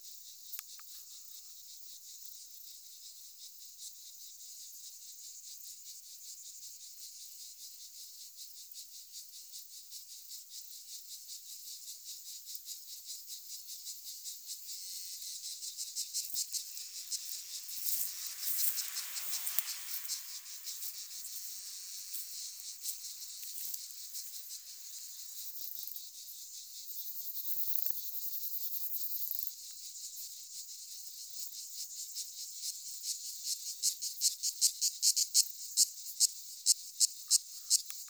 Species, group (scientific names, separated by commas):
Platycleis affinis, Orthoptera